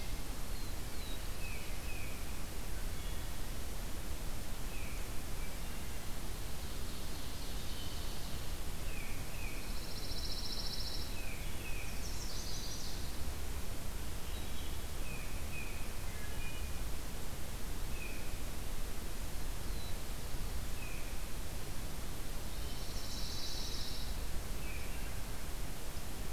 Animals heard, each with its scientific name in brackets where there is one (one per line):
Pine Warbler (Setophaga pinus)
Black-throated Blue Warbler (Setophaga caerulescens)
Chestnut-sided Warbler (Setophaga pensylvanica)
Tufted Titmouse (Baeolophus bicolor)
Wood Thrush (Hylocichla mustelina)
Ovenbird (Seiurus aurocapilla)